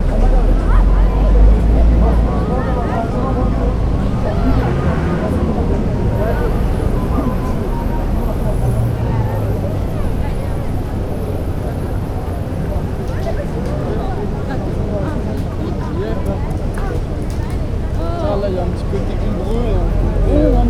Is this a crowded place?
yes